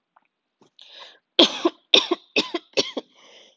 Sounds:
Cough